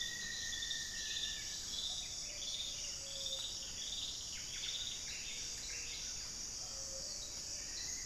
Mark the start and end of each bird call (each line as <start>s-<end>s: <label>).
0.0s-2.4s: Rufous-fronted Antthrush (Formicarius rufifrons)
0.0s-8.1s: Gray-fronted Dove (Leptotila rufaxilla)
7.4s-8.1s: Plumbeous Antbird (Myrmelastes hyperythrus)